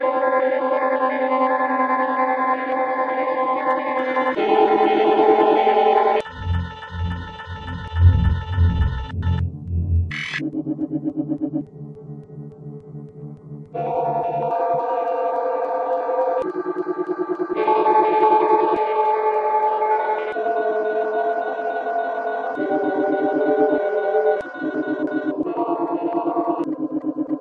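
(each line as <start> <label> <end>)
0.0 Unidentifiable electronic noise produced by a machine or device. 4.4
4.4 Loud, medium-frequency electronic noise produced by a device or machine. 6.3
6.2 A low-frequency electronic noise produced by a device or machine. 10.1
10.1 An unidentifiable screeching electronic sound produced by a device or machine. 10.4
10.3 A medium-frequency electronic humming sound produced by a device or machine. 11.7
11.7 Rhythmic electronic or mechanical sounds produced by a machine. 13.8
13.8 High-frequency, electronic, and spooky sound produced by a device or machine. 16.5
16.4 A high-frequency, hovering electronic sound produced by a device or machine. 17.6
17.6 An electronic signal sound with medium to high frequency. 27.4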